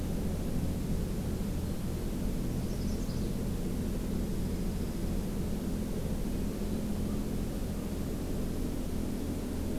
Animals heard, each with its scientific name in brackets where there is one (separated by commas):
Magnolia Warbler (Setophaga magnolia), Dark-eyed Junco (Junco hyemalis)